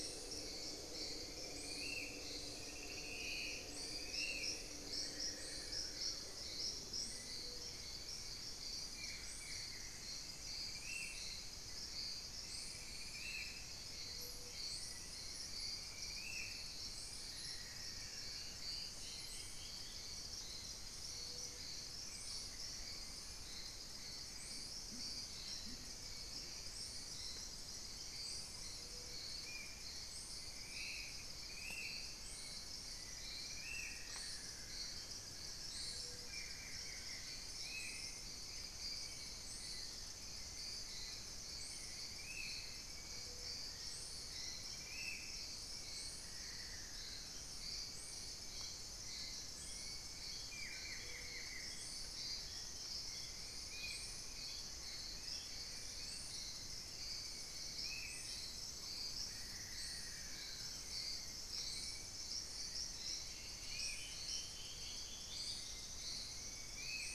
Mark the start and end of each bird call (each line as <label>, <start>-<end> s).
Spot-winged Antshrike (Pygiptila stellaris), 0.0-16.8 s
Black-faced Antthrush (Formicarius analis), 2.4-4.6 s
Buff-throated Woodcreeper (Xiphorhynchus guttatus), 4.7-10.2 s
Black-faced Antthrush (Formicarius analis), 14.6-16.5 s
Buff-throated Woodcreeper (Xiphorhynchus guttatus), 16.8-18.6 s
Dusky-throated Antshrike (Thamnomanes ardesiacus), 17.5-20.3 s
Amazonian Pygmy-Owl (Glaucidium hardyi), 21.5-24.3 s
Horned Screamer (Anhima cornuta), 24.8-26.2 s
Spot-winged Antshrike (Pygiptila stellaris), 29.2-45.5 s
Buff-throated Woodcreeper (Xiphorhynchus guttatus), 33.4-37.4 s
Buff-throated Woodcreeper (Xiphorhynchus guttatus), 46.0-52.0 s
Hauxwell's Thrush (Turdus hauxwelli), 52.8-67.1 s
Spot-winged Antshrike (Pygiptila stellaris), 53.5-67.1 s
Gray Antwren (Myrmotherula menetriesii), 55.0-57.2 s
Buff-throated Woodcreeper (Xiphorhynchus guttatus), 59.0-60.9 s
unidentified bird, 60.0-61.1 s
Dusky-throated Antshrike (Thamnomanes ardesiacus), 62.8-67.1 s